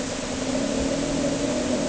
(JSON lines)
{"label": "anthrophony, boat engine", "recorder": "HydroMoth"}